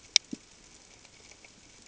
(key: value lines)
label: ambient
recorder: HydroMoth